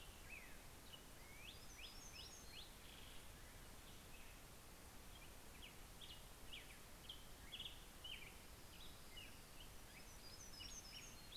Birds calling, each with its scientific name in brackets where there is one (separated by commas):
Hermit Warbler (Setophaga occidentalis), Black-headed Grosbeak (Pheucticus melanocephalus)